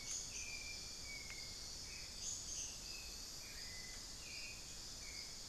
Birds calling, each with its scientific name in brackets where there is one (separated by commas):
Hauxwell's Thrush (Turdus hauxwelli), unidentified bird